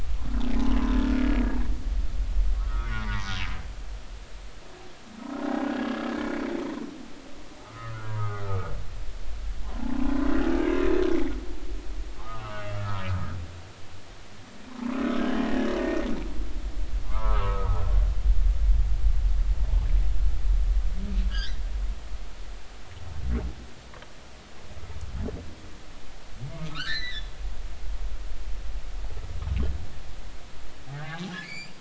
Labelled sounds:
0.5	0.8	humpback whale, 0.80 to 1.1 kHz
2.5	3.3	humpback whale, 0.83 to 1.6 kHz
7.6	8.4	humpback whale, 1.1 to 1.5 kHz
10.5	11.4	humpback whale, 1.7 to 2.4 kHz
12.2	13.1	humpback whale, 0.99 to 2.9 kHz
15.3	15.7	humpback whale, 1.6 to 2.0 kHz
17.0	17.8	humpback whale, 0.83 to 1.4 kHz
21.3	21.6	humpback whale, 1.4 to 5.2 kHz
26.6	27.4	humpback whale, 1.0 to 4.7 kHz
30.9	31.7	humpback whale, 1.4 to 4.9 kHz

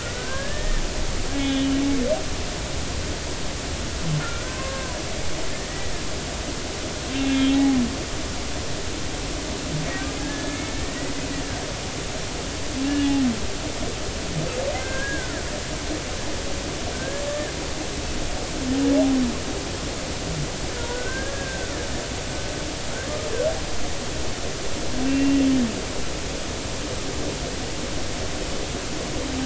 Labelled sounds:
0.0	0.8	humpback whale, 1.4 to 1.9 kHz
1.3	1.7	humpback whale, 2.9 to 3.6 kHz
4.2	5.0	humpback whale, 0.93 to 1.6 kHz
5.7	5.9	humpback whale, 1.9 to 2.0 kHz
7.3	7.8	humpback whale, 0.80 to 3.4 kHz
10.2	11.0	humpback whale, 1.6 to 1.9 kHz
11.5	13.3	humpback whale, 2.1 to 2.9 kHz
14.7	15.4	humpback whale, 1.3 to 2.1 kHz
16.9	17.5	humpback whale, 1.5 to 1.9 kHz
20.8	21.8	humpback whale, 1.3 to 1.7 kHz
25.0	25.5	humpback whale, 2.7 to 2.8 kHz

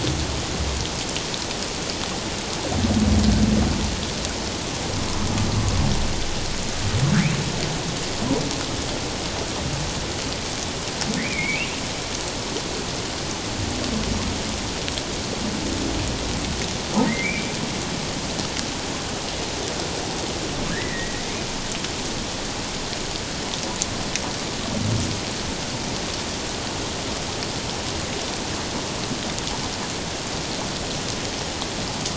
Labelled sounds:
11.2	11.8	humpback whale, 1.8 to 2.8 kHz
17.1	17.5	humpback whale, 1.8 to 2.5 kHz
20.7	21.1	humpback whale, 1.6 to 2.1 kHz

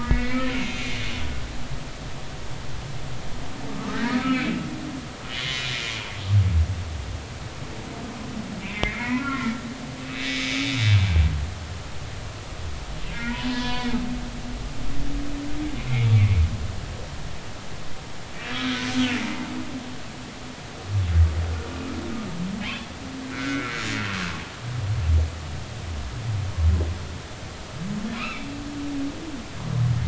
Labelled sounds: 0.0	1.5	humpback whale, 1.7 to 2.7 kHz
3.8	4.6	humpback whale, 1.1 to 2.5 kHz
5.1	5.7	humpback whale, 1.2 to 2.2 kHz
8.6	9.7	humpback whale, 0.90 to 2.8 kHz
10.3	10.7	humpback whale, 2.1 to 2.4 kHz
13.1	14.0	humpback whale, 0.90 to 3.5 kHz
15.9	16.4	humpback whale, 2.0 to 2.5 kHz
18.4	18.9	humpback whale, 2.8 to 3.9 kHz
23.2	23.7	humpback whale, 1.3 to 2.3 kHz
28.1	28.5	humpback whale, 0.96 to 2.8 kHz

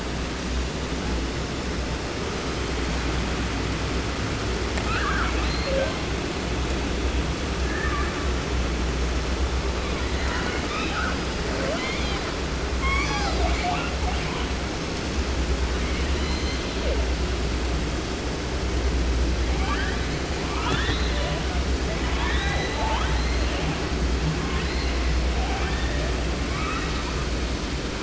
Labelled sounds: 2.3	3.2	killer whale, 0.73 to 5.4 kHz
4.8	6.1	killer whale, 0.23 to 4.9 kHz
7.6	8.3	killer whale, 0.50 to 3.0 kHz
9.8	11.2	killer whale, 0.30 to 5.4 kHz
11.5	12.3	killer whale, southern resident, J pod, call S01, 0.30 to 6.9 kHz
12.8	14.6	killer whale, 0.49 to 7.9 kHz
15.8	17.1	killer whale, southern resident, J pod, call S01, 0.30 to 7.7 kHz
19.4	21.7	killer whale, 0.30 to 5.0 kHz
21.9	23.8	killer whale, southern resident, 0.30 to 4.7 kHz
24.3	25.2	killer whale, 0.66 to 4.6 kHz
25.4	26.2	killer whale, southern resident, 0.30 to 4.0 kHz
26.4	27.3	killer whale, 0.54 to 5.3 kHz

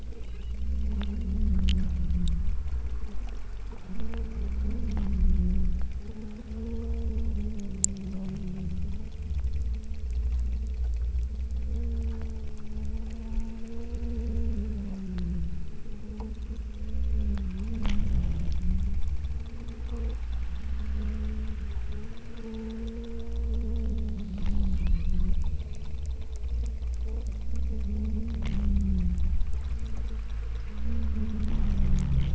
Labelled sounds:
0.0	0.7	killer whale, southern Alaska resident, 2.2 to 4.3 kHz
24.7	25.2	killer whale, southern Alaska resident, 2.0 to 4.2 kHz

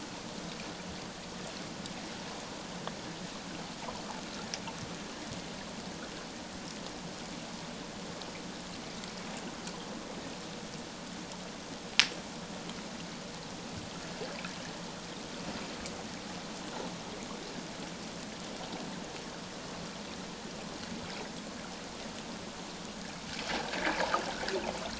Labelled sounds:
23.9	24.2	water noise, 0.78 to 1.0 kHz

